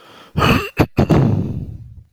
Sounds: Throat clearing